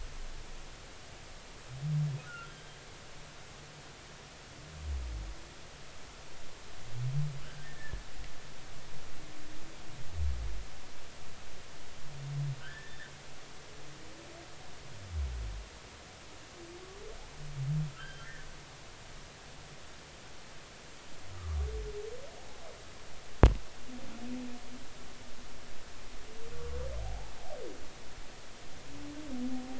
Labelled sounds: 2.2	2.5	humpback whale, 1.3 to 1.6 kHz
7.6	8.0	humpback whale, 1.6 to 1.9 kHz
12.6	13.0	humpback whale, 1.4 to 1.9 kHz
17.9	18.5	humpback whale, 1.2 to 3.3 kHz
26.5	27.3	humpback whale, 0.80 to 1.2 kHz

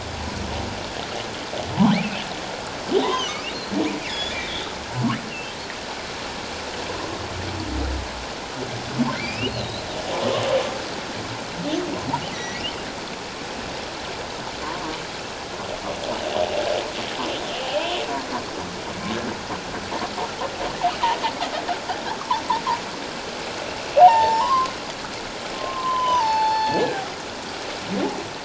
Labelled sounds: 1.7	2.0	humpback whale, 0.78 to 1.3 kHz
3.0	3.3	humpback whale, 0.78 to 1.2 kHz
4.0	4.7	humpback whale, 1.6 to 7.0 kHz
5.3	5.5	humpback whale, 2.6 to 3.0 kHz
9.1	9.8	humpback whale, 2.0 to 4.4 kHz
12.3	12.6	humpback whale, 1.9 to 6.1 kHz
14.6	15.0	humpback whale, 0.91 to 1.2 kHz
17.6	17.9	humpback whale, 0.78 to 1.1 kHz
24.0	24.7	humpback whale, 0.78 to 3.1 kHz
25.6	27.0	humpback whale, 0.81 to 5.1 kHz

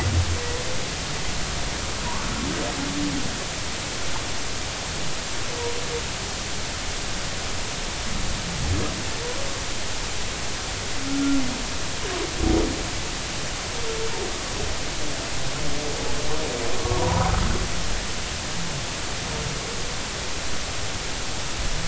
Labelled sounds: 11.1	11.4	humpback whale, 1.3 to 1.4 kHz
17.0	17.3	humpback whale, 0.80 to 1.1 kHz

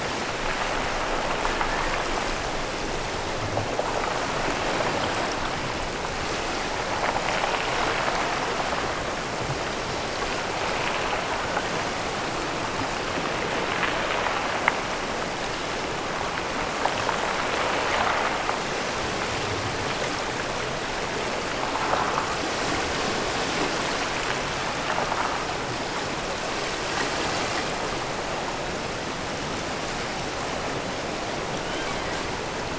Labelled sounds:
31.5	32.1	killer whale, offshore, 1.1 to 3.3 kHz

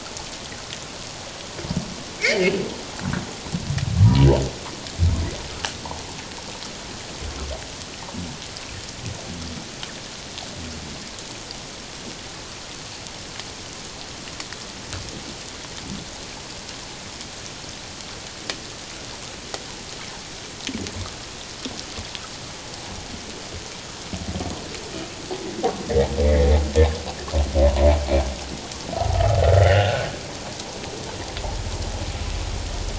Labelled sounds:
2.2	2.5	humpback whale, 1.7 to 2.4 kHz
26.2	26.5	humpback whale, 1.8 to 2.4 kHz
29.5	30.1	humpback whale, 1.3 to 3.1 kHz

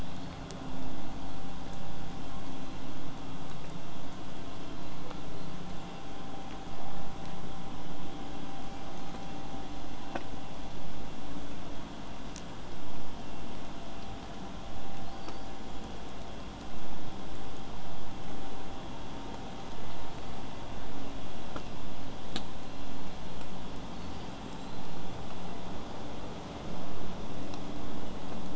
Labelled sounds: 0.0	0.4	killer whale, southern resident, 3.2 to 4.4 kHz
11.9	12.5	killer whale, whistle, 7.6 to 8.0 kHz

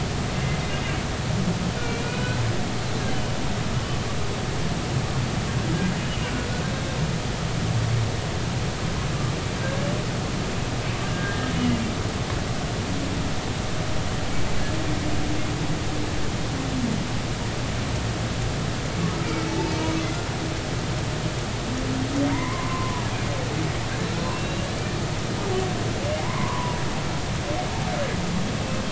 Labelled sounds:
1.8	2.2	humpback whale, 2.3 to 2.6 kHz
6.7	7.0	humpback whale, 3.6 to 3.8 kHz
11.1	11.8	humpback whale, 1.5 to 3.0 kHz
19.5	19.7	humpback whale, 0.83 to 0.96 kHz
22.3	23.1	humpback whale, 0.90 to 2.2 kHz
24.3	24.7	humpback whale, 2.7 to 2.9 kHz
26.2	26.8	humpback whale, 0.93 to 1.2 kHz

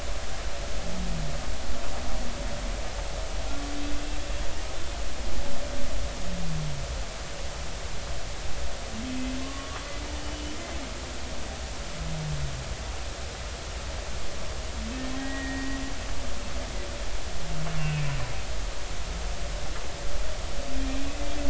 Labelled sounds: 9.4	10.5	humpback whale, 1.0 to 3.0 kHz
15.2	15.8	humpback whale, 1.8 to 2.0 kHz
17.8	18.1	humpback whale, 2.5 to 2.8 kHz
21.0	21.2	humpback whale, 2.4 to 2.7 kHz

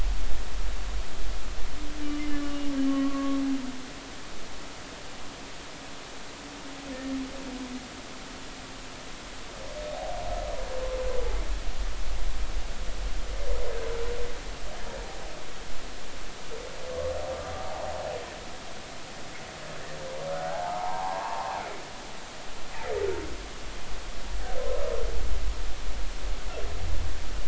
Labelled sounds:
2.4	3.1	humpback whale, 2.8 to 3.1 kHz
3.9	4.4	humpback whale, 1.0 to 1.2 kHz
17.6	17.9	humpback whale, 0.80 to 0.99 kHz
20.3	21.6	humpback whale, 0.80 to 1.5 kHz

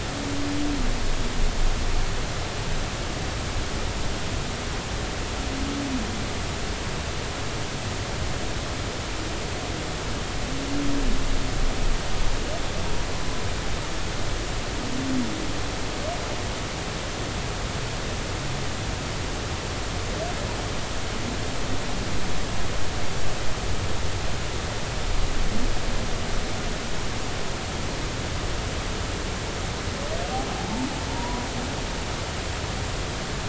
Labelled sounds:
30.5	31.5	humpback whale, 0.80 to 1.0 kHz

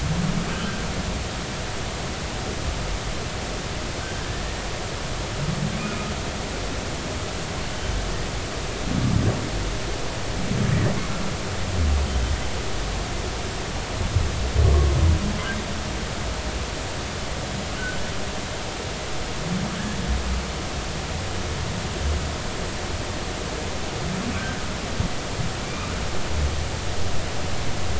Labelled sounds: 5.8	6.0	humpback whale, 2.4 to 2.6 kHz
25.6	25.9	humpback whale, 2.2 to 2.6 kHz

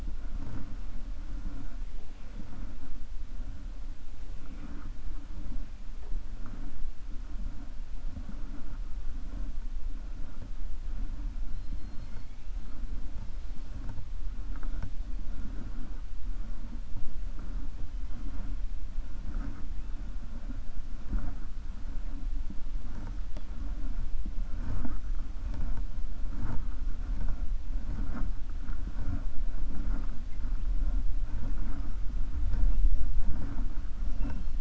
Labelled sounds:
12.0	12.4	killer whale, 1.4 to 2.8 kHz

